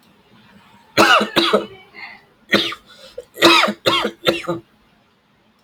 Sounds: Laughter